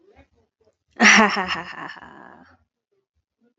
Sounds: Laughter